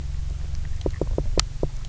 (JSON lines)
{"label": "biophony, knock", "recorder": "SoundTrap 300"}